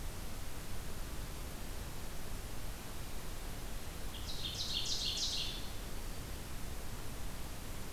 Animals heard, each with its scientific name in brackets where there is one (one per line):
Ovenbird (Seiurus aurocapilla)